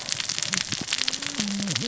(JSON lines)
{"label": "biophony, cascading saw", "recorder": "SoundTrap 600 or HydroMoth"}